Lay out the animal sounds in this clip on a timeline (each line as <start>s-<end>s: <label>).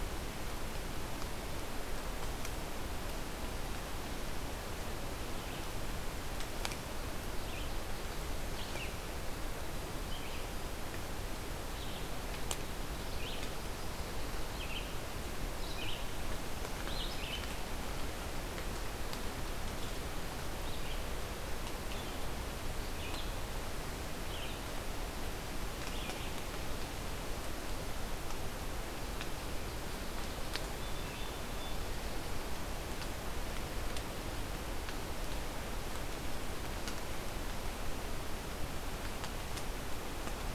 7.2s-26.5s: Red-eyed Vireo (Vireo olivaceus)
29.4s-32.0s: Song Sparrow (Melospiza melodia)